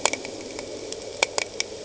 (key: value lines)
label: anthrophony, boat engine
recorder: HydroMoth